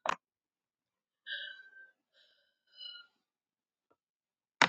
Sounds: Sigh